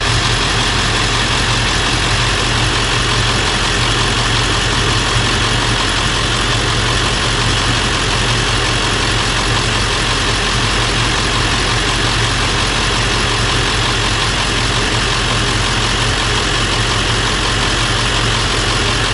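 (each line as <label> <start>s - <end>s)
A diesel engine of a truck is heard. 0.0s - 19.1s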